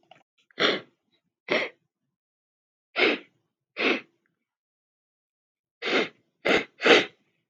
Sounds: Sniff